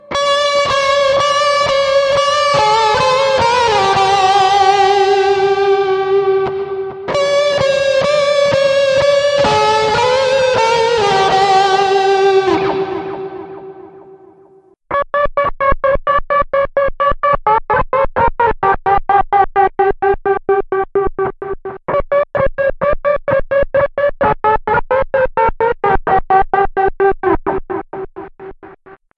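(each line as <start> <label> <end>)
0.1 An electric guitar plays a melody. 14.1
14.9 An electric guitar plays a melody without reverb. 28.6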